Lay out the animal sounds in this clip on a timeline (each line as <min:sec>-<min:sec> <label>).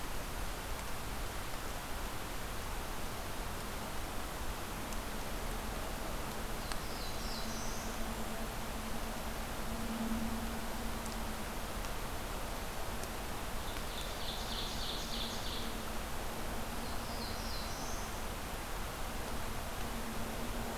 0:06.5-0:07.9 Black-throated Blue Warbler (Setophaga caerulescens)
0:06.9-0:08.3 Blackburnian Warbler (Setophaga fusca)
0:13.5-0:15.7 Ovenbird (Seiurus aurocapilla)
0:16.8-0:18.2 Black-throated Blue Warbler (Setophaga caerulescens)